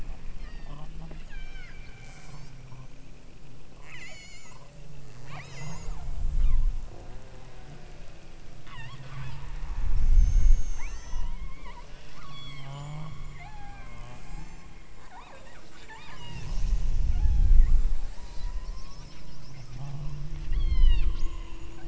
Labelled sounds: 0.4	2.6	killer whale, southern Alaska resident, 1.3 to 8.0 kHz
3.7	4.7	killer whale, southern Alaska resident, 0.78 to 8.0 kHz
5.3	6.0	killer whale, southern Alaska resident, 0.59 to 8.0 kHz
6.3	6.7	killer whale, southern Alaska resident, 0.84 to 4.4 kHz
8.6	9.5	killer whale, southern Alaska resident, 0.73 to 5.9 kHz
10.0	12.8	killer whale, southern Alaska resident, 0.62 to 8.0 kHz
13.4	14.8	killer whale, southern Alaska resident, 0.52 to 8.0 kHz
15.1	16.5	killer whale, southern Alaska resident, 0.57 to 5.1 kHz
17.1	17.8	killer whale, southern Alaska resident, 0.57 to 4.3 kHz
18.1	19.0	killer whale, southern Alaska resident, 0.80 to 8.0 kHz
20.5	21.1	killer whale, southern Alaska resident, 0.84 to 7.0 kHz

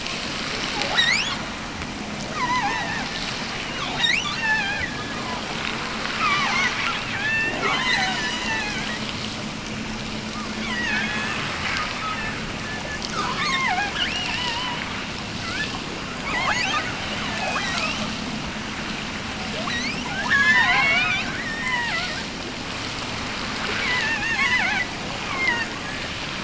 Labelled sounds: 0.8	1.5	killer whale, offshore, 0.43 to 8.0 kHz
2.3	3.2	killer whale, offshore, 0.45 to 6.5 kHz
3.6	5.2	killer whale, offshore, 0.45 to 8.0 kHz
6.0	9.1	killer whale, offshore, 0.57 to 8.0 kHz
10.3	11.4	killer whale, offshore, 0.68 to 5.7 kHz
11.8	12.6	killer whale, offshore, 0.89 to 3.6 kHz
13.1	15.0	killer whale, offshore, 0.45 to 8.0 kHz
15.4	18.1	killer whale, offshore, 0.41 to 8.0 kHz
19.4	22.4	killer whale, offshore, 0.32 to 7.0 kHz
23.6	25.8	killer whale, offshore, 0.36 to 7.1 kHz

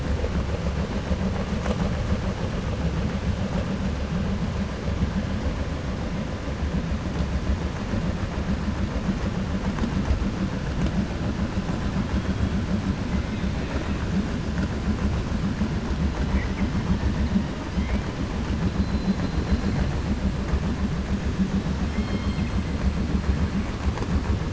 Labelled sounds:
18.8	19.7	killer whale, 4.0 to 4.9 kHz
21.8	22.5	killer whale, 1.8 to 5.3 kHz

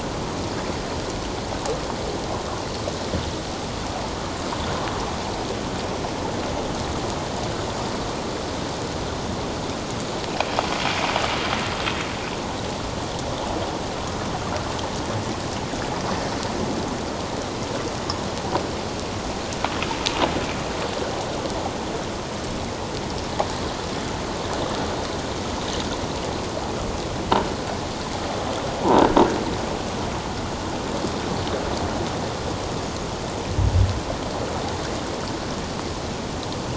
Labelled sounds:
28.8	29.1	croaking sound likely from a nearby submerged object, 0.81 to 1.0 kHz

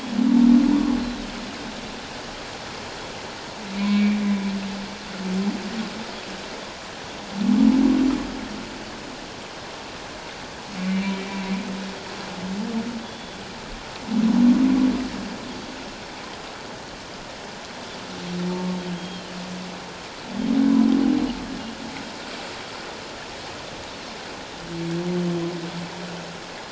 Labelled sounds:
1.0	1.3	humpback whale, 3.7 to 4.2 kHz
3.8	4.2	humpback whale, 2.2 to 2.5 kHz
10.8	11.3	humpback whale, 2.2 to 2.5 kHz
13.0	13.4	Pacific white-sided dolphin, 3.3 to 3.5 kHz
18.9	19.3	Pacific white-sided dolphin, 2.9 to 3.3 kHz

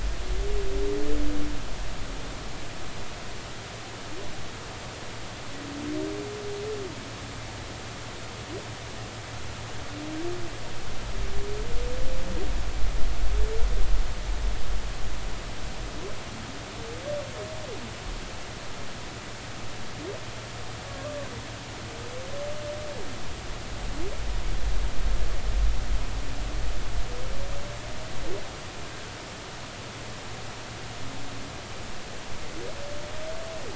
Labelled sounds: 20.9	21.2	humpback whale, 1.1 to 1.2 kHz

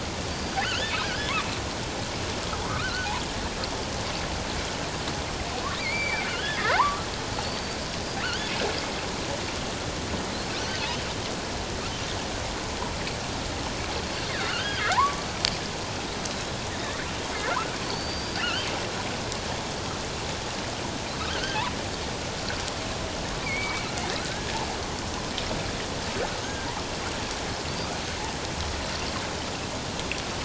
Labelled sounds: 0.3	1.3	killer whale, offshore, 1.2 to 6.8 kHz
2.6	3.1	killer whale, offshore, 0.78 to 1.6 kHz
5.8	7.1	killer whale, offshore, 0.78 to 4.8 kHz
7.4	7.8	killer whale, offshore, 4.3 to 4.7 kHz
8.2	8.5	killer whale, offshore, 2.6 to 3.5 kHz
14.3	15.2	killer whale, offshore, 0.78 to 3.4 kHz
16.7	17.0	killer whale, offshore, 1.7 to 2.0 kHz
17.8	18.7	killer whale, offshore, 2.6 to 4.8 kHz
21.3	21.6	killer whale, offshore, 1.4 to 1.7 kHz
23.4	24.6	killer whale, offshore, 1.2 to 2.4 kHz
26.4	26.7	killer whale, offshore, 1.5 to 1.7 kHz

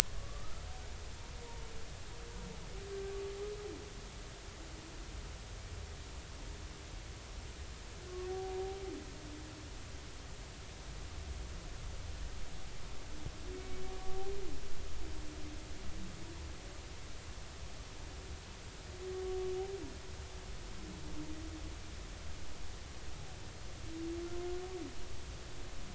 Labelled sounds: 0.2	0.7	humpback whale, 1.1 to 1.4 kHz
2.9	3.2	humpback whale, 1.5 to 1.6 kHz
13.5	13.8	humpback whale, 2.2 to 2.3 kHz
15.0	15.3	humpback whale, 0.80 to 0.83 kHz

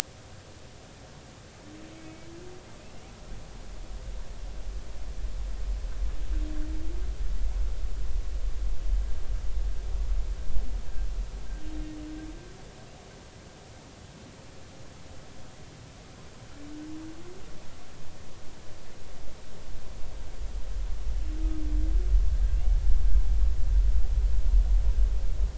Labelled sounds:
2.0	2.3	humpback whale, 2.2 to 2.3 kHz

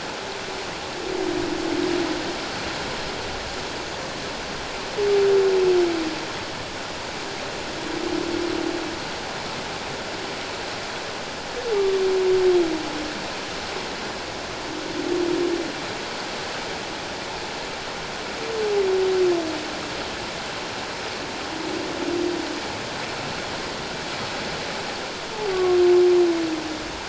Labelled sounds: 25.5	25.8	humpback whale, 1.0 to 1.2 kHz

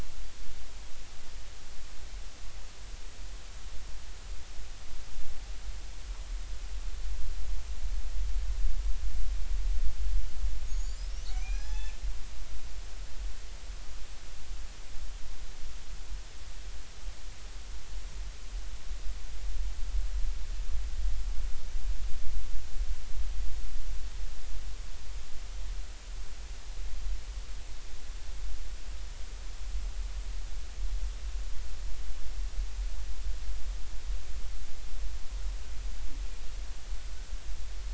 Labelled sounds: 10.6	12.0	killer whale, Bigg's (transient), 0.80 to 7.3 kHz

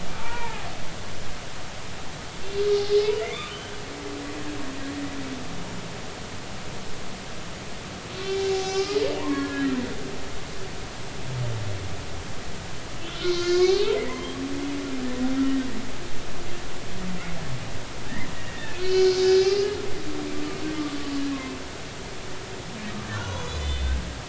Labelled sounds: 0.1	0.7	humpback whale, 0.80 to 1.9 kHz
3.2	3.5	humpback whale, 1.9 to 2.6 kHz
8.2	9.7	humpback whale, 0.80 to 6.4 kHz
13.0	14.3	humpback whale, 0.80 to 4.5 kHz
15.0	15.7	humpback whale, 1.7 to 2.0 kHz
18.4	19.7	humpback whale, 1.4 to 5.2 kHz
23.1	24.0	humpback whale, 0.93 to 7.1 kHz

